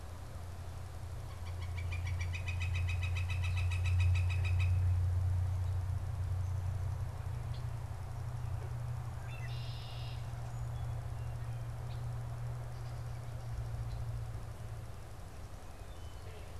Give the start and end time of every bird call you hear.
1.2s-4.9s: Northern Flicker (Colaptes auratus)
7.5s-7.7s: Red-winged Blackbird (Agelaius phoeniceus)
8.9s-16.5s: Red-winged Blackbird (Agelaius phoeniceus)

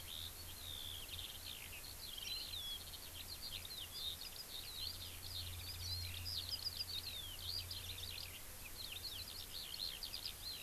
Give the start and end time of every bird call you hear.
0.0s-10.6s: Eurasian Skylark (Alauda arvensis)
2.2s-2.5s: Warbling White-eye (Zosterops japonicus)

